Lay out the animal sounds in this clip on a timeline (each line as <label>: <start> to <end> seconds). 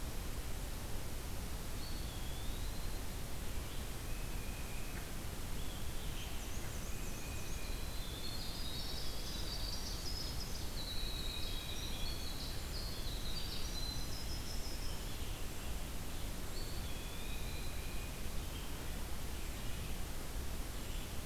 Eastern Wood-Pewee (Contopus virens): 1.5 to 3.0 seconds
Tufted Titmouse (Baeolophus bicolor): 3.9 to 5.0 seconds
Black-and-white Warbler (Mniotilta varia): 6.1 to 7.8 seconds
Winter Wren (Troglodytes hiemalis): 7.5 to 15.2 seconds
Tufted Titmouse (Baeolophus bicolor): 10.9 to 12.3 seconds
Eastern Wood-Pewee (Contopus virens): 16.4 to 18.0 seconds
Tufted Titmouse (Baeolophus bicolor): 16.6 to 18.2 seconds